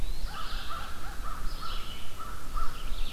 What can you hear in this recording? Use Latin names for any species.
Contopus virens, Vireo olivaceus, Corvus brachyrhynchos, Seiurus aurocapilla